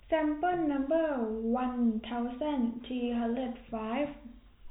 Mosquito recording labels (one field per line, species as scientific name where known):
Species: no mosquito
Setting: cup